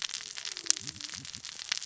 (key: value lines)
label: biophony, cascading saw
recorder: SoundTrap 600 or HydroMoth